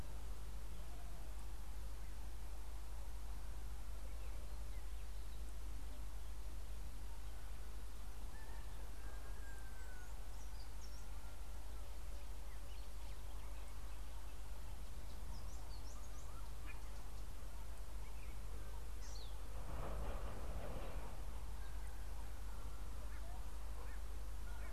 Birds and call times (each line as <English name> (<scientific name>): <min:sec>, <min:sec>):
Collared Sunbird (Hedydipna collaris): 0:19.2